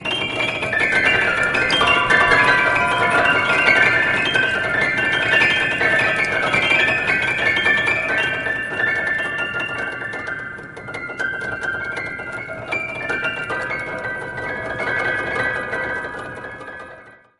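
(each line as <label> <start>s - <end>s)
A piano plays keys very rapidly. 0.0s - 17.4s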